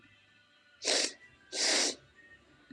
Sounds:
Sniff